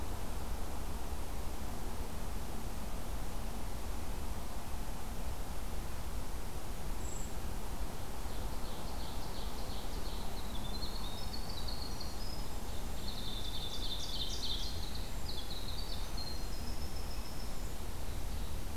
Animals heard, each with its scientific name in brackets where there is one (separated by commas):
Ovenbird (Seiurus aurocapilla), Brown Creeper (Certhia americana), Winter Wren (Troglodytes hiemalis)